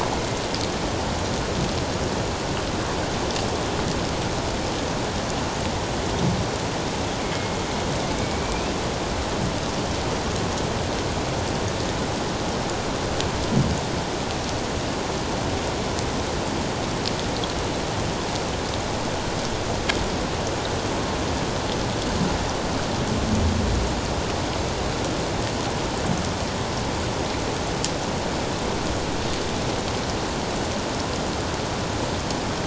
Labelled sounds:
8.2	8.8	killer whale, 2.2 to 2.8 kHz

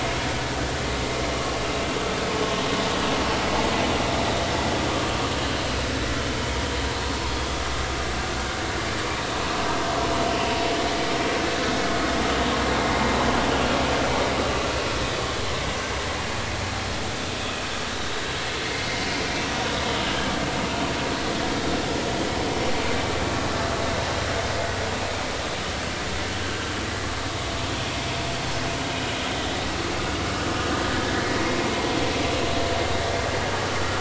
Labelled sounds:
17.9	18.2	vessel noise, 3.6 to 4.0 kHz

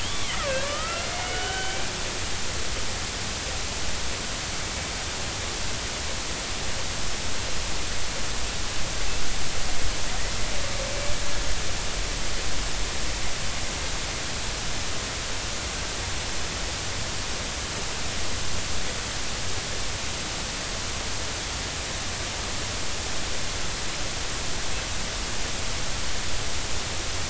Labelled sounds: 0.0	1.8	killer whale, Bigg's (transient), 1.1 to 3.5 kHz

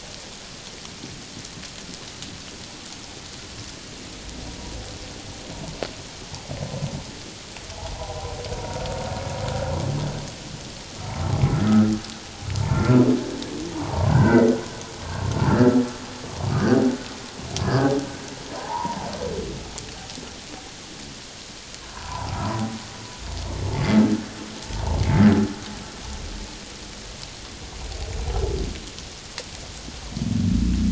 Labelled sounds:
8.0	8.2	humpback whale, 0.91 to 1.0 kHz
12.7	13.0	humpback whale, 1.3 to 1.4 kHz
13.9	14.5	humpback whale, 0.78 to 2.1 kHz
15.0	15.3	humpback whale, 1.0 to 1.2 kHz
17.6	18.0	humpback whale, 1.5 to 1.8 kHz
18.5	19.1	humpback whale, 0.78 to 1.1 kHz
21.8	22.3	humpback whale, 0.78 to 1.1 kHz

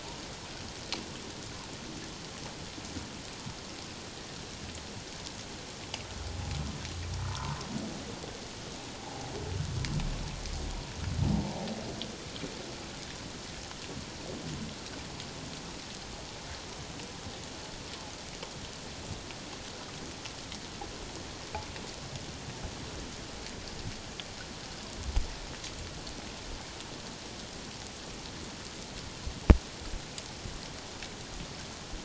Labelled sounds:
7.3	7.6	humpback whale, 0.88 to 1.3 kHz
9.0	9.3	humpback whale, 0.78 to 0.94 kHz

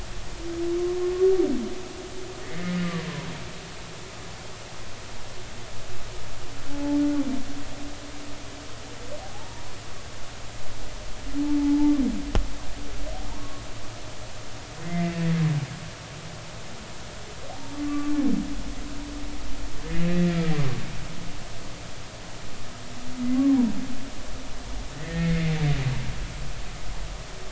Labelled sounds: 2.4	2.7	humpback whale, 1.7 to 2.2 kHz
6.7	7.0	humpback whale, 0.83 to 0.93 kHz
9.2	9.7	humpback whale, 0.80 to 0.99 kHz
11.4	11.9	humpback whale, 0.80 to 0.96 kHz
13.3	13.6	humpback whale, 1.1 to 1.2 kHz
14.8	15.2	humpback whale, 2.0 to 2.1 kHz
17.8	18.1	humpback whale, 1.1 to 1.2 kHz
19.8	20.4	humpback whale, 1.7 to 2.3 kHz
25.0	25.5	humpback whale, 1.8 to 2.2 kHz

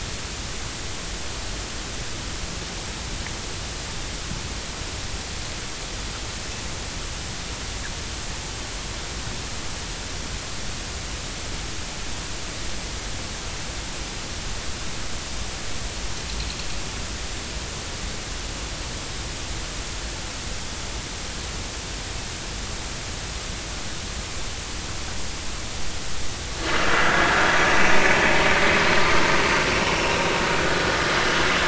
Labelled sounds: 27.0	27.3	vessel noise, 1.6 to 1.7 kHz
29.9	30.2	vessel noise, 5.3 to 5.4 kHz

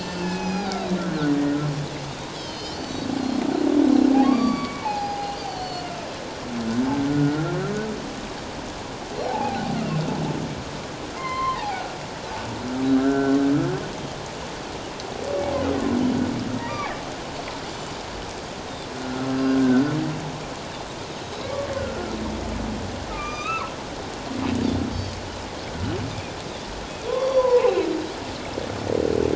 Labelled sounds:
0.2	1.3	humpback whale, 0.78 to 6.0 kHz
2.3	3.1	Pacific white-sided dolphin, 2.9 to 6.1 kHz
4.2	5.4	humpback whale, 0.78 to 5.2 kHz
5.4	5.9	Pacific white-sided dolphin, 2.7 to 4.8 kHz
6.8	7.1	humpback whale, 1.5 to 1.6 kHz
9.2	9.6	humpback whale, 0.78 to 0.94 kHz
11.2	11.9	humpback whale, 0.78 to 4.3 kHz
13.0	13.4	humpback whale, 1.3 to 1.7 kHz
17.7	18.0	Pacific white-sided dolphin, 6.8 to 7.2 kHz
19.0	19.9	humpback whale, 1.3 to 1.6 kHz
21.2	21.5	Pacific white-sided dolphin, 3.8 to 4.0 kHz
21.4	22.2	humpback whale, 1.0 to 1.6 kHz
23.1	23.7	humpback whale, 0.97 to 6.2 kHz
24.9	25.2	Pacific white-sided dolphin, 4.3 to 4.6 kHz
27.1	27.9	humpback whale, 0.78 to 2.8 kHz
27.1	27.5	Pacific white-sided dolphin, 3.3 to 3.6 kHz

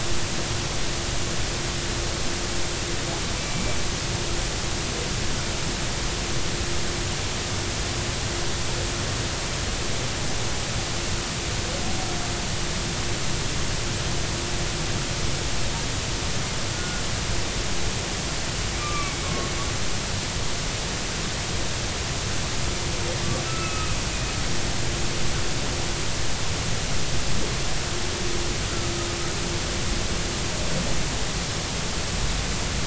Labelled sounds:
3.4	3.8	humpback whale, 2.2 to 2.4 kHz
16.7	17.0	humpback whale, 1.4 to 1.5 kHz
18.8	19.5	humpback whale, 1.0 to 2.4 kHz
23.5	24.0	humpback whale, 1.2 to 2.7 kHz

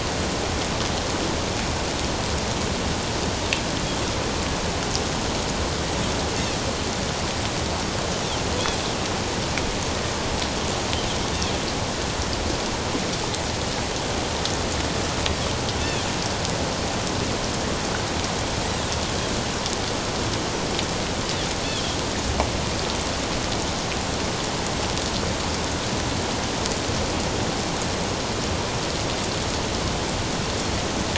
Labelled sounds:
15.8	16.0	Pacific white-sided dolphin, 2.4 to 2.8 kHz
21.6	22.0	Pacific white-sided dolphin, 3.1 to 3.6 kHz

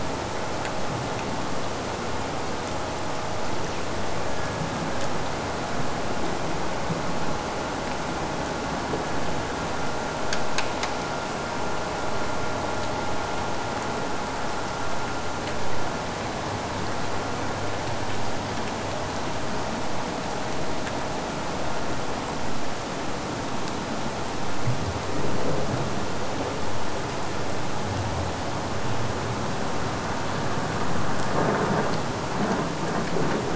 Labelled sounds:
4.1	5.8	killer whale, Bigg's (transient), AT1 transient, 1.3 to 1.8 kHz

